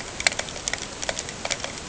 {"label": "ambient", "recorder": "HydroMoth"}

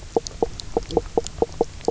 {"label": "biophony, knock croak", "recorder": "SoundTrap 300"}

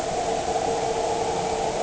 {"label": "anthrophony, boat engine", "recorder": "HydroMoth"}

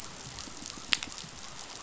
{"label": "biophony", "recorder": "SoundTrap 500"}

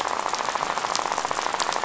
{"label": "biophony, rattle", "recorder": "SoundTrap 500"}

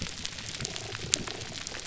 {"label": "biophony, pulse", "recorder": "SoundTrap 300"}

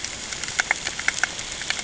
{"label": "ambient", "recorder": "HydroMoth"}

